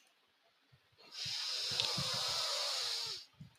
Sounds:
Sniff